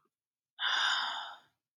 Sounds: Sigh